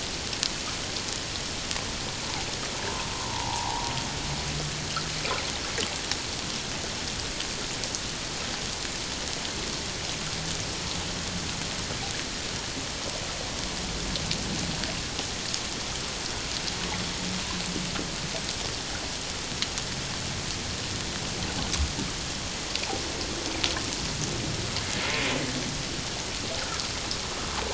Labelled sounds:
3.1	3.9	humpback whale, 0.78 to 1.2 kHz

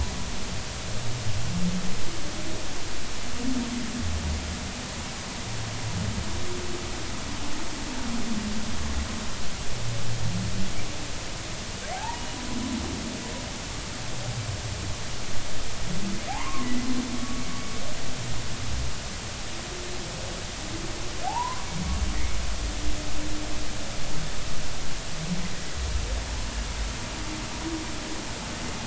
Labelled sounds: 11.9	12.3	humpback whale, 0.80 to 0.99 kHz
16.3	16.7	humpback whale, 0.80 to 1.3 kHz
21.2	21.7	humpback whale, 0.80 to 1.2 kHz

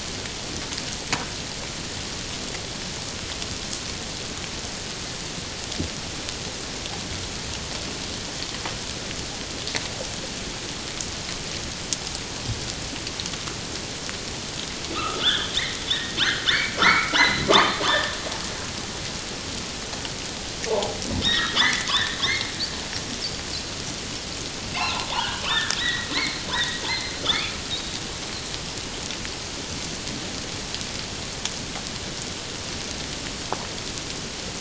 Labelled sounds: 14.9	15.5	humpback whale, 1.1 to 3.8 kHz
15.9	18.1	humpback whale, 0.84 to 4.2 kHz
20.7	22.5	humpback whale, 0.78 to 3.9 kHz
24.7	27.5	humpback whale, 0.78 to 4.5 kHz

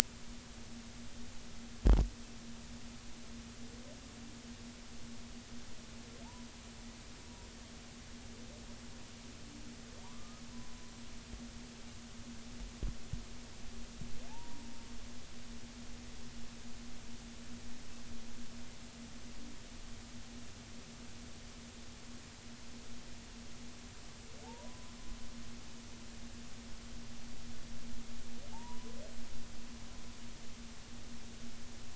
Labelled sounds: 10.0	10.4	humpback whale, 0.86 to 1.3 kHz
14.3	14.7	humpback whale, 0.80 to 1.0 kHz
24.4	25.0	humpback whale, 0.80 to 1.1 kHz
28.5	28.9	humpback whale, 0.80 to 1.1 kHz

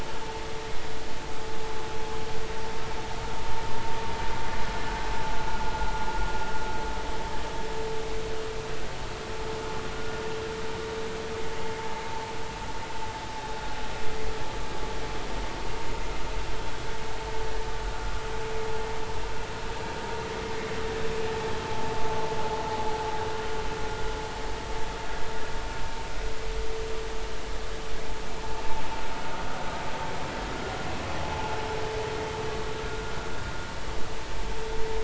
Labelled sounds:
21.7	21.9	vessel noise, 0.80 to 0.93 kHz
31.3	31.6	vessel noise, 0.80 to 0.93 kHz

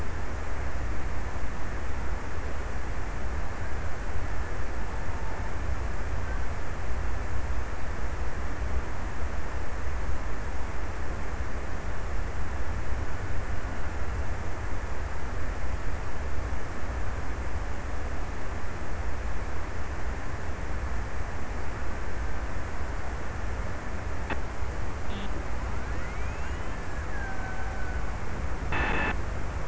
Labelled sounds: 26.6	28.3	killer whale, Bigg's (transient), 0.46 to 2.1 kHz

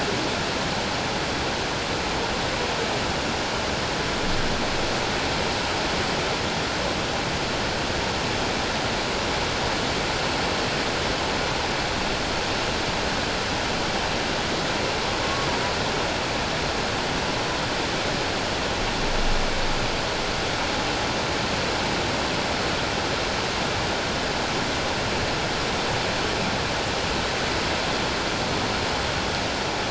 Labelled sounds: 15.2	15.5	humpback whale, 1.0 to 1.2 kHz

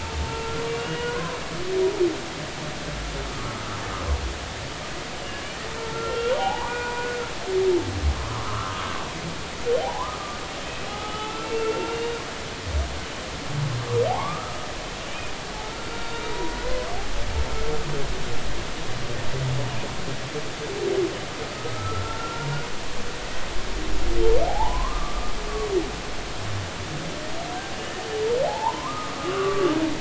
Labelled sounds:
0.2	1.4	humpback whale, 0.86 to 2.9 kHz
3.3	3.8	humpback whale, 1.1 to 1.4 kHz
5.9	7.1	humpback whale, 0.80 to 2.9 kHz
8.2	8.9	humpback whale, 0.96 to 1.4 kHz
9.8	10.2	humpback whale, 0.80 to 1.3 kHz
10.7	12.2	humpback whale, 0.80 to 3.8 kHz
14.1	14.7	humpback whale, 0.80 to 1.3 kHz
15.6	16.3	humpback whale, 1.3 to 3.8 kHz
16.6	17.0	humpback whale, 0.96 to 1.2 kHz
21.5	22.5	humpback whale, 1.2 to 1.5 kHz
24.5	25.3	humpback whale, 0.80 to 1.3 kHz
28.5	29.7	humpback whale, 0.80 to 1.5 kHz

